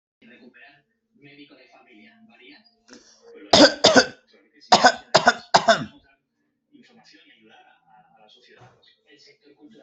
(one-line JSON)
{"expert_labels": [{"quality": "ok", "cough_type": "dry", "dyspnea": false, "wheezing": false, "stridor": false, "choking": false, "congestion": false, "nothing": true, "diagnosis": "COVID-19", "severity": "mild"}], "age": 28, "gender": "male", "respiratory_condition": true, "fever_muscle_pain": false, "status": "symptomatic"}